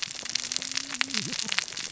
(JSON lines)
{"label": "biophony, cascading saw", "recorder": "SoundTrap 600 or HydroMoth"}